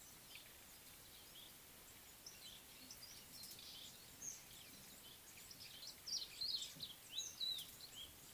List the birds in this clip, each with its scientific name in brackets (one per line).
Red-faced Crombec (Sylvietta whytii)